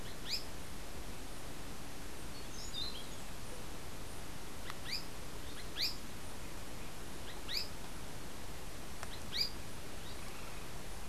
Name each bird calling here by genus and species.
Synallaxis azarae, Catharus aurantiirostris